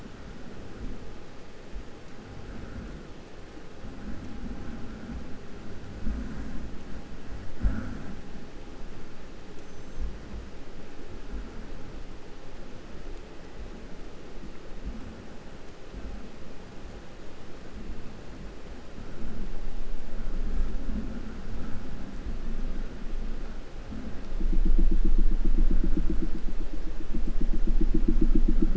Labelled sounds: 9.5	10.6	killer whale, 5.5 to 8.0 kHz

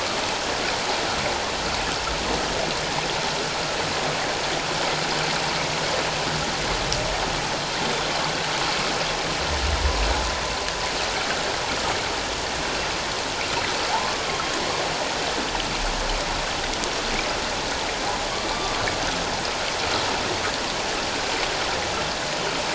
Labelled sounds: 18.5	18.7	humpback whale, 1.1 to 1.2 kHz

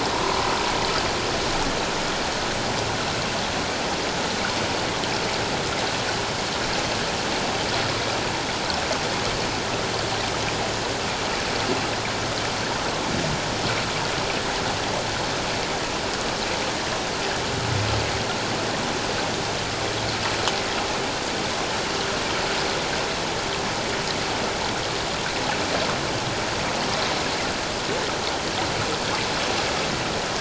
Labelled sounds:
0.1	0.5	humpback whale, 0.88 to 1.1 kHz

